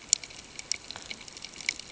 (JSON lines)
{"label": "ambient", "recorder": "HydroMoth"}